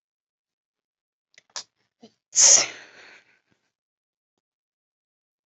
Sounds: Sneeze